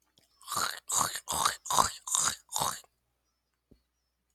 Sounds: Throat clearing